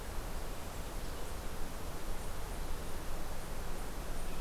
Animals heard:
forest ambience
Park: Hubbard Brook Experimental Forest